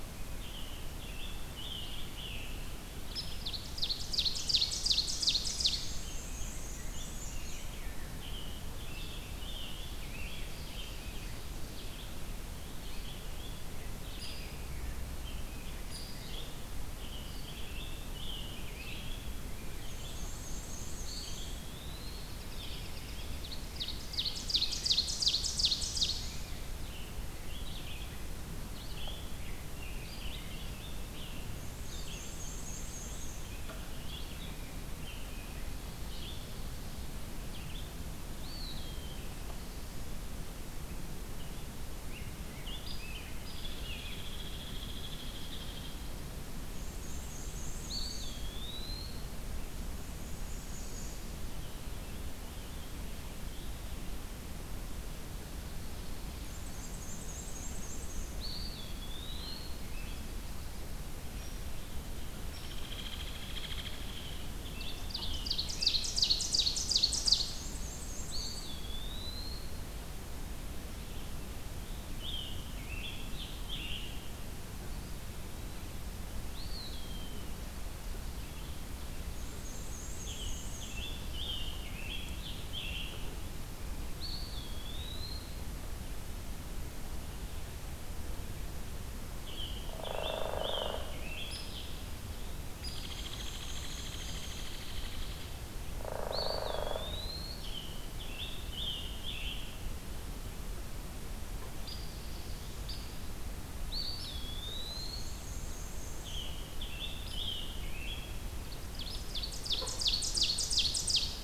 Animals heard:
Red-eyed Vireo (Vireo olivaceus), Rose-breasted Grosbeak (Pheucticus ludovicianus), Hairy Woodpecker (Dryobates villosus), American Robin (Turdus migratorius), Scarlet Tanager (Piranga olivacea), Ovenbird (Seiurus aurocapilla), Black-and-white Warbler (Mniotilta varia), Eastern Wood-Pewee (Contopus virens)

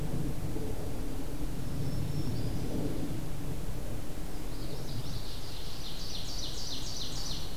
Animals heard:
Common Yellowthroat (Geothlypis trichas), Ovenbird (Seiurus aurocapilla), Black-throated Green Warbler (Setophaga virens)

